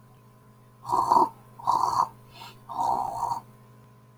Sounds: Throat clearing